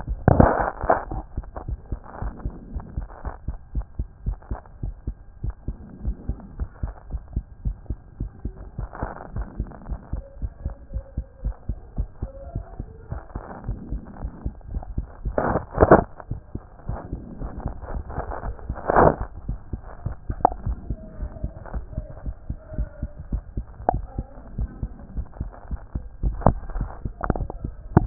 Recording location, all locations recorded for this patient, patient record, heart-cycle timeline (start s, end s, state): mitral valve (MV)
aortic valve (AV)+pulmonary valve (PV)+tricuspid valve (TV)+mitral valve (MV)
#Age: Child
#Sex: Male
#Height: 135.0 cm
#Weight: 28.2 kg
#Pregnancy status: False
#Murmur: Absent
#Murmur locations: nan
#Most audible location: nan
#Systolic murmur timing: nan
#Systolic murmur shape: nan
#Systolic murmur grading: nan
#Systolic murmur pitch: nan
#Systolic murmur quality: nan
#Diastolic murmur timing: nan
#Diastolic murmur shape: nan
#Diastolic murmur grading: nan
#Diastolic murmur pitch: nan
#Diastolic murmur quality: nan
#Outcome: Normal
#Campaign: 2014 screening campaign
0.00	1.36	unannotated
1.36	1.44	S2
1.44	1.68	diastole
1.68	1.78	S1
1.78	1.90	systole
1.90	2.00	S2
2.00	2.22	diastole
2.22	2.34	S1
2.34	2.44	systole
2.44	2.54	S2
2.54	2.72	diastole
2.72	2.84	S1
2.84	2.96	systole
2.96	3.08	S2
3.08	3.26	diastole
3.26	3.34	S1
3.34	3.48	systole
3.48	3.56	S2
3.56	3.74	diastole
3.74	3.86	S1
3.86	3.98	systole
3.98	4.08	S2
4.08	4.26	diastole
4.26	4.38	S1
4.38	4.50	systole
4.50	4.58	S2
4.58	4.82	diastole
4.82	4.94	S1
4.94	5.06	systole
5.06	5.16	S2
5.16	5.42	diastole
5.42	5.54	S1
5.54	5.66	systole
5.66	5.76	S2
5.76	6.04	diastole
6.04	6.16	S1
6.16	6.28	systole
6.28	6.36	S2
6.36	6.58	diastole
6.58	6.70	S1
6.70	6.82	systole
6.82	6.92	S2
6.92	7.12	diastole
7.12	7.22	S1
7.22	7.34	systole
7.34	7.44	S2
7.44	7.64	diastole
7.64	7.76	S1
7.76	7.88	systole
7.88	7.98	S2
7.98	8.20	diastole
8.20	8.30	S1
8.30	8.44	systole
8.44	8.54	S2
8.54	8.78	diastole
8.78	8.88	S1
8.88	9.02	systole
9.02	9.10	S2
9.10	9.34	diastole
9.34	9.46	S1
9.46	9.58	systole
9.58	9.68	S2
9.68	9.88	diastole
9.88	10.00	S1
10.00	10.12	systole
10.12	10.22	S2
10.22	10.42	diastole
10.42	10.52	S1
10.52	10.64	systole
10.64	10.74	S2
10.74	10.92	diastole
10.92	11.04	S1
11.04	11.16	systole
11.16	11.26	S2
11.26	11.44	diastole
11.44	11.54	S1
11.54	11.68	systole
11.68	11.78	S2
11.78	11.98	diastole
11.98	12.08	S1
12.08	12.22	systole
12.22	12.30	S2
12.30	12.54	diastole
12.54	12.64	S1
12.64	12.78	systole
12.78	12.88	S2
12.88	13.12	diastole
13.12	13.22	S1
13.22	13.34	systole
13.34	13.42	S2
13.42	13.66	diastole
13.66	13.78	S1
13.78	13.92	systole
13.92	14.02	S2
14.02	14.22	diastole
14.22	14.32	S1
14.32	14.44	systole
14.44	14.54	S2
14.54	14.72	diastole
14.72	14.84	S1
14.84	28.06	unannotated